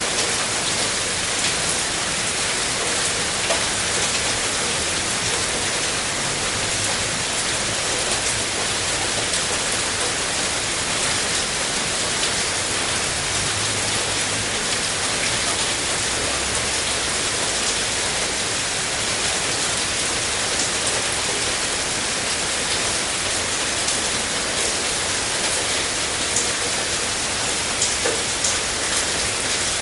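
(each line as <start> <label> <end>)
0.0 Cars driving in the distance. 29.8
0.0 Raindrops plopping on the ground. 29.8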